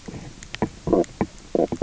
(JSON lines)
{"label": "biophony, knock croak", "recorder": "SoundTrap 300"}